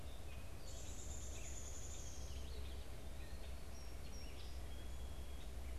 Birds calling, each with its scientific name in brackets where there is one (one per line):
Gray Catbird (Dumetella carolinensis)
Downy Woodpecker (Dryobates pubescens)
Song Sparrow (Melospiza melodia)